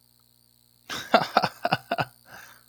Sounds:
Laughter